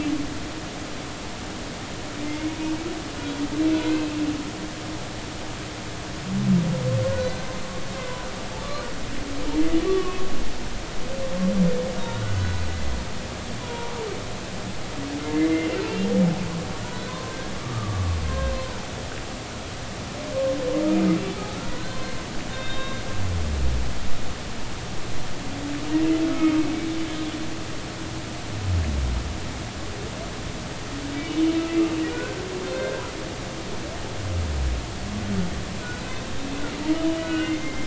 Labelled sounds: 2.2	2.5	humpback whale, 2.0 to 2.2 kHz
3.7	4.2	humpback whale, 1.4 to 2.8 kHz
7.2	7.5	humpback whale, 3.9 to 4.1 kHz
9.8	10.2	humpback whale, 1.0 to 1.2 kHz
12.0	12.9	humpback whale, 1.3 to 3.9 kHz
13.6	13.9	humpback whale, 0.90 to 1.1 kHz
15.3	15.7	humpback whale, 1.9 to 2.1 kHz
17.0	18.5	humpback whale, 0.96 to 3.7 kHz
21.7	23.0	humpback whale, 1.4 to 3.8 kHz
26.3	26.6	humpback whale, 1.2 to 1.3 kHz
32.1	33.0	humpback whale, 1.4 to 4.2 kHz
36.9	37.8	humpback whale, 1.4 to 3.1 kHz

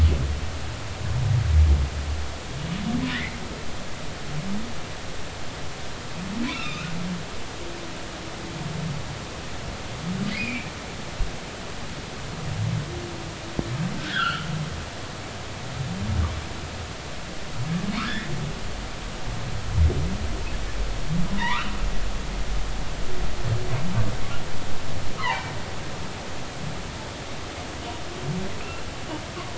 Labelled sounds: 3.1	3.4	humpback whale, 1.7 to 2.4 kHz
6.5	6.9	humpback whale, 1.2 to 3.9 kHz
10.3	10.7	humpback whale, 2.2 to 5.0 kHz
14.0	14.5	humpback whale, 1.2 to 3.6 kHz
19.0	19.3	humpback whale, 1.4 to 2.0 kHz
21.3	21.7	humpback whale, 0.86 to 2.5 kHz
25.2	25.5	humpback whale, 0.80 to 2.1 kHz
28.6	28.8	humpback whale, 2.4 to 2.8 kHz

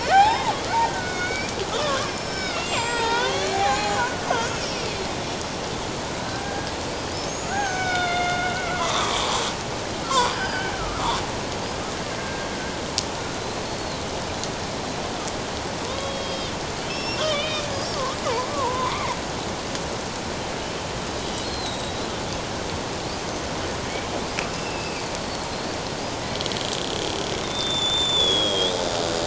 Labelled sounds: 0.0	5.0	killer whale, Bigg's (transient), 0.78 to 7.8 kHz
6.4	6.7	killer whale, Bigg's (transient), 1.6 to 1.7 kHz
7.3	11.2	killer whale, Bigg's (transient), 0.78 to 6.8 kHz
12.2	12.5	killer whale, Bigg's (transient), 1.5 to 1.7 kHz
13.3	14.0	killer whale, Bigg's (transient), 3.8 to 4.5 kHz
15.9	17.7	killer whale, Bigg's (transient), 0.94 to 5.6 kHz
18.5	19.2	killer whale, Bigg's (transient), 0.88 to 2.4 kHz
21.4	22.0	killer whale, Bigg's (transient), 3.7 to 7.8 kHz
24.4	25.1	killer whale, Bigg's (transient), 2.2 to 5.1 kHz
27.4	28.7	killer whale, Bigg's (transient), 3.2 to 7.2 kHz

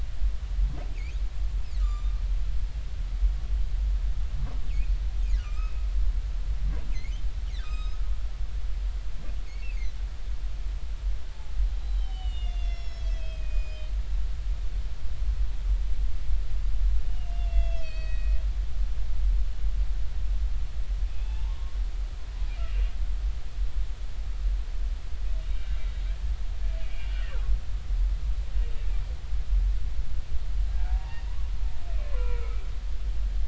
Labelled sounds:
1.8	2.2	humpback whale, 1.1 to 7.4 kHz
4.7	4.9	humpback whale, 2.1 to 2.8 kHz
5.4	5.8	humpback whale, 1.2 to 2.6 kHz
6.9	8.0	humpback whale, 1.2 to 6.5 kHz
9.6	10.0	humpback whale, 2.0 to 2.8 kHz
11.8	13.9	humpback whale, 2.0 to 6.9 kHz
17.1	18.4	humpback whale, 1.8 to 6.9 kHz
21.1	21.8	humpback whale, 0.80 to 3.6 kHz
22.5	22.8	humpback whale, 2.7 to 2.9 kHz
26.8	27.1	humpback whale, 2.2 to 2.6 kHz
30.7	31.2	humpback whale, 0.80 to 1.7 kHz
32.0	32.6	humpback whale, 0.93 to 2.4 kHz

